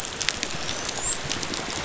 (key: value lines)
label: biophony, dolphin
recorder: SoundTrap 500